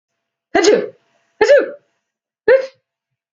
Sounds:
Sneeze